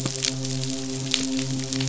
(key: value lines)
label: biophony, midshipman
recorder: SoundTrap 500